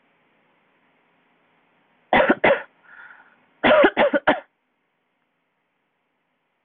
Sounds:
Cough